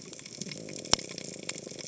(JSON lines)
{"label": "biophony", "recorder": "HydroMoth"}